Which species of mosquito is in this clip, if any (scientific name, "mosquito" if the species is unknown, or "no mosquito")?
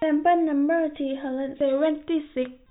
no mosquito